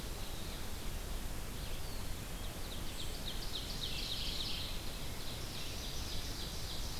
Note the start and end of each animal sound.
[0.00, 7.00] Red-eyed Vireo (Vireo olivaceus)
[1.36, 2.31] Eastern Wood-Pewee (Contopus virens)
[2.16, 7.00] Ovenbird (Seiurus aurocapilla)
[3.81, 4.95] Mourning Warbler (Geothlypis philadelphia)

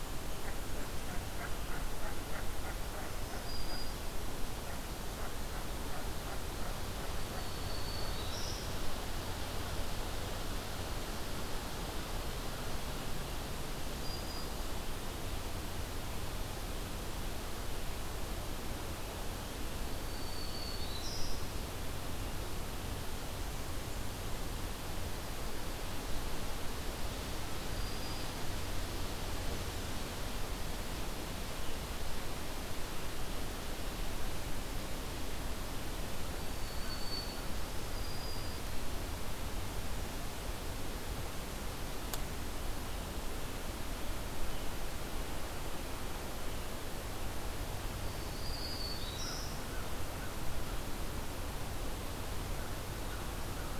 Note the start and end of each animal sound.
[0.00, 8.58] Common Merganser (Mergus merganser)
[2.90, 4.15] Black-throated Green Warbler (Setophaga virens)
[7.05, 9.03] Black-throated Green Warbler (Setophaga virens)
[13.73, 14.75] Black-throated Green Warbler (Setophaga virens)
[19.91, 21.81] Black-throated Green Warbler (Setophaga virens)
[27.44, 28.48] Black-throated Green Warbler (Setophaga virens)
[36.15, 38.74] Black-throated Green Warbler (Setophaga virens)
[47.75, 50.02] Black-throated Green Warbler (Setophaga virens)
[48.96, 50.98] American Crow (Corvus brachyrhynchos)

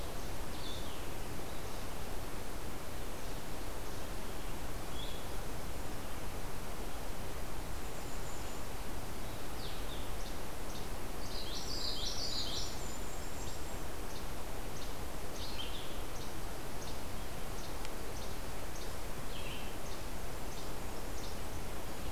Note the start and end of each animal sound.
[0.47, 22.11] Blue-headed Vireo (Vireo solitarius)
[7.42, 8.76] Golden-crowned Kinglet (Regulus satrapa)
[10.10, 22.11] Least Flycatcher (Empidonax minimus)
[11.18, 12.70] Common Yellowthroat (Geothlypis trichas)
[11.44, 13.92] Golden-crowned Kinglet (Regulus satrapa)

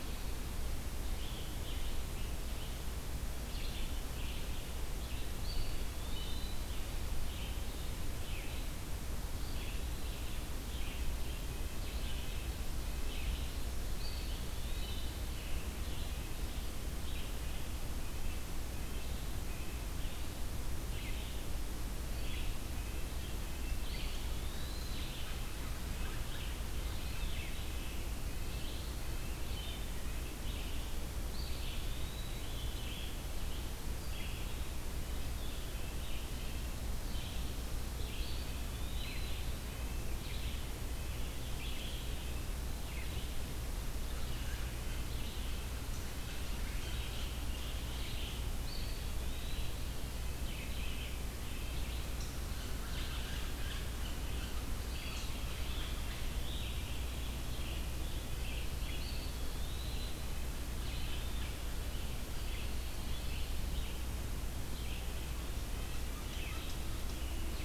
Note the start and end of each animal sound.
[0.00, 56.09] Red-eyed Vireo (Vireo olivaceus)
[5.37, 6.78] Eastern Wood-Pewee (Contopus virens)
[9.24, 10.38] Eastern Wood-Pewee (Contopus virens)
[11.29, 19.80] Red-breasted Nuthatch (Sitta canadensis)
[13.75, 15.61] Eastern Wood-Pewee (Contopus virens)
[22.83, 30.51] Red-breasted Nuthatch (Sitta canadensis)
[23.61, 25.36] Eastern Wood-Pewee (Contopus virens)
[30.99, 33.06] Eastern Wood-Pewee (Contopus virens)
[37.88, 39.61] Eastern Wood-Pewee (Contopus virens)
[48.28, 49.83] Eastern Wood-Pewee (Contopus virens)
[52.08, 55.33] unknown mammal
[52.35, 54.21] American Crow (Corvus brachyrhynchos)
[54.82, 55.63] Eastern Wood-Pewee (Contopus virens)
[56.00, 58.00] Scarlet Tanager (Piranga olivacea)
[56.35, 67.65] Red-eyed Vireo (Vireo olivaceus)
[58.80, 61.57] Red-breasted Nuthatch (Sitta canadensis)
[58.84, 60.39] Eastern Wood-Pewee (Contopus virens)
[65.05, 66.86] Red-breasted Nuthatch (Sitta canadensis)

